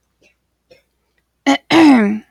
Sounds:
Throat clearing